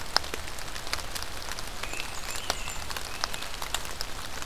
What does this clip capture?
Blackburnian Warbler, American Robin, Great Crested Flycatcher